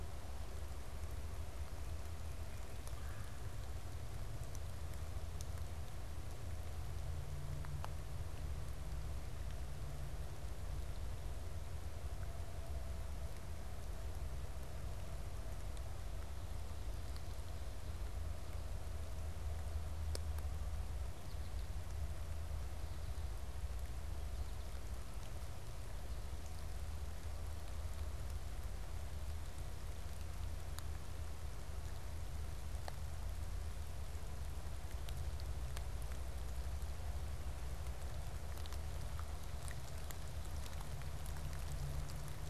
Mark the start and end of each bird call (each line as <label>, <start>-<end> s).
Red-bellied Woodpecker (Melanerpes carolinus), 2.8-3.5 s
American Goldfinch (Spinus tristis), 21.1-21.8 s
American Goldfinch (Spinus tristis), 24.0-24.8 s